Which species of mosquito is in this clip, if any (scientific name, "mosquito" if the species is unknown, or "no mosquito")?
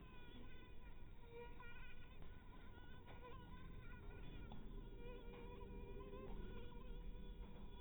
mosquito